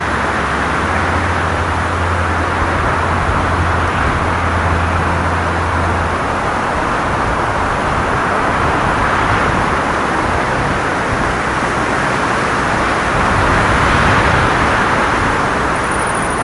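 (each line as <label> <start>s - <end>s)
A moderate wind blowing continuously. 0.0s - 16.4s
A steady, low-pitched mechanical humming noise. 1.3s - 6.7s
A high-pitched chirping. 15.7s - 16.4s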